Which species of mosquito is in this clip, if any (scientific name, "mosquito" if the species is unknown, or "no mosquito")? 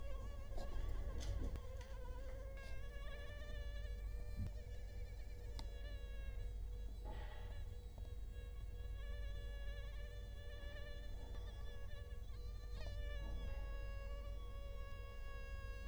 Culex quinquefasciatus